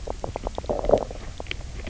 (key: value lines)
label: biophony, knock croak
recorder: SoundTrap 300